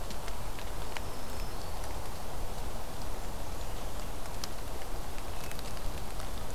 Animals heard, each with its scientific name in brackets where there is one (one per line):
Hermit Thrush (Catharus guttatus)
Black-throated Green Warbler (Setophaga virens)